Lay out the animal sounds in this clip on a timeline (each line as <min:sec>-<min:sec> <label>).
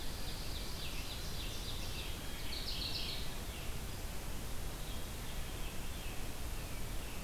0:00.0-0:02.2 Ovenbird (Seiurus aurocapilla)
0:02.4-0:03.5 Mourning Warbler (Geothlypis philadelphia)
0:05.4-0:07.2 American Robin (Turdus migratorius)